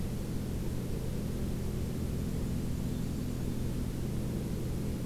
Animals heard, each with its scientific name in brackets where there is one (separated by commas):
Black-and-white Warbler (Mniotilta varia)